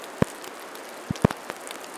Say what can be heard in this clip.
rain